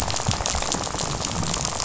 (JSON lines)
{"label": "biophony, rattle", "recorder": "SoundTrap 500"}